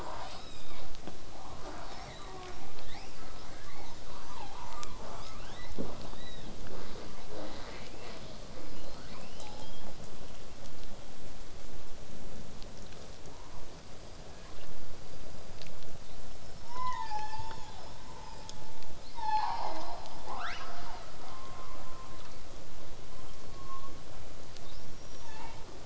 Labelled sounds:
0.0	0.9	killer whale, southern resident, 0.35 to 8.0 kHz
1.6	6.5	killer whale, southern resident, 0.22 to 8.0 kHz
9.0	10.0	killer whale, southern resident, 0.49 to 5.9 kHz
13.7	14.7	killer whale, southern resident, L pod, call S19, 0.81 to 5.2 kHz
20.3	21.1	killer whale, southern resident, 0.13 to 6.6 kHz

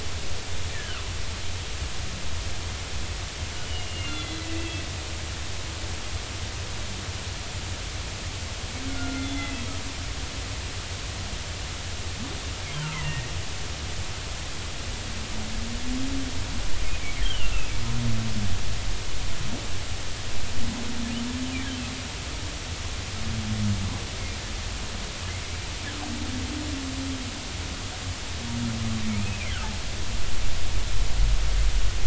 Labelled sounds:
0.7	1.1	humpback whale, 1.1 to 1.9 kHz
3.5	4.8	humpback whale, 2.6 to 3.6 kHz
8.9	9.6	humpback whale, 1.3 to 3.6 kHz
12.8	13.3	humpback whale, 1.2 to 2.2 kHz
17.2	17.7	humpback whale, 2.5 to 3.3 kHz
29.2	29.6	humpback whale, 1.9 to 2.7 kHz

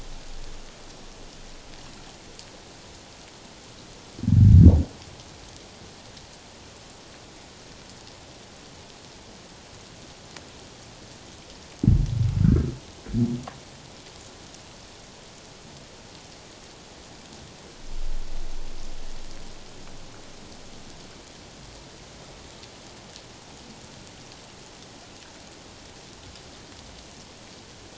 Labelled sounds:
12.4	12.7	humpback whale, 1.2 to 1.7 kHz

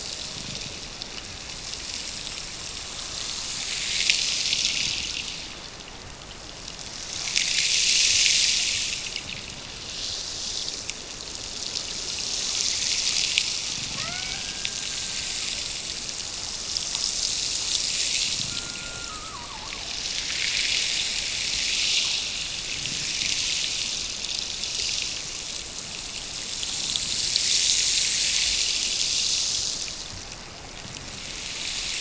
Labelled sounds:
13.9	15.6	killer whale, Bigg's (transient), Gulf of Alaska transient, 0.41 to 2.4 kHz
18.4	19.8	killer whale, Bigg's (transient), Gulf of Alaska transient, 0.71 to 1.5 kHz

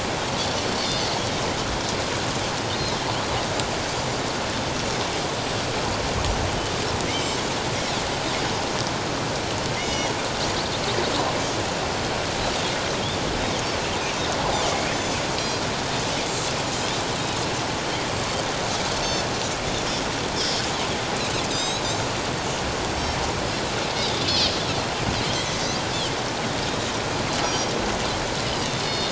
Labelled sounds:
7.1	7.4	Pacific white-sided dolphin, 2.0 to 3.2 kHz
9.8	10.1	Pacific white-sided dolphin, 1.9 to 6.0 kHz
14.7	15.2	Pacific white-sided dolphin, 2.1 to 5.3 kHz
20.3	20.6	Pacific white-sided dolphin, 4.8 to 5.7 kHz
21.5	21.8	Pacific white-sided dolphin, 3.6 to 8.0 kHz
25.3	25.6	Pacific white-sided dolphin, 3.1 to 3.4 kHz
27.4	27.7	Pacific white-sided dolphin, 5.6 to 6.7 kHz
28.5	29.1	Pacific white-sided dolphin, 2.7 to 4.4 kHz

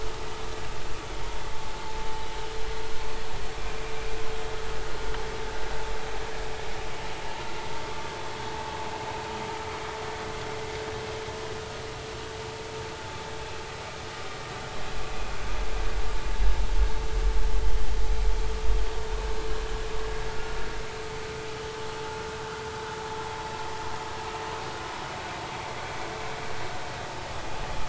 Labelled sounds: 7.9	8.1	vessel noise, 1.1 to 1.2 kHz
20.3	20.6	vessel noise, 1.4 to 1.5 kHz

